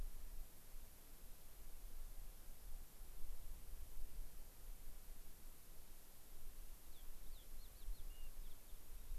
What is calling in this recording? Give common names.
Fox Sparrow